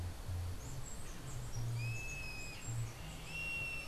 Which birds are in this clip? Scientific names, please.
Uranomitra franciae, Milvago chimachima